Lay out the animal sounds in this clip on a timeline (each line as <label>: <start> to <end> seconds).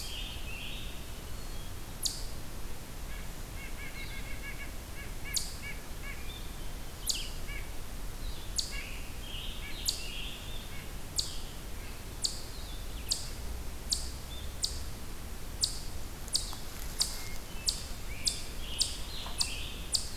Scarlet Tanager (Piranga olivacea): 0.0 to 1.0 seconds
Red-eyed Vireo (Vireo olivaceus): 0.0 to 10.8 seconds
Eastern Chipmunk (Tamias striatus): 0.0 to 20.2 seconds
White-breasted Nuthatch (Sitta carolinensis): 2.9 to 6.3 seconds
White-breasted Nuthatch (Sitta carolinensis): 7.4 to 7.7 seconds
White-breasted Nuthatch (Sitta carolinensis): 8.6 to 8.9 seconds
White-breasted Nuthatch (Sitta carolinensis): 9.5 to 9.8 seconds
White-breasted Nuthatch (Sitta carolinensis): 10.7 to 10.9 seconds
Hermit Thrush (Catharus guttatus): 17.0 to 18.1 seconds
Scarlet Tanager (Piranga olivacea): 18.1 to 20.1 seconds